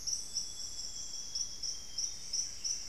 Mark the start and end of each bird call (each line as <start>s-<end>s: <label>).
0.0s-2.3s: Amazonian Grosbeak (Cyanoloxia rothschildii)
2.0s-2.9s: Plumbeous Antbird (Myrmelastes hyperythrus)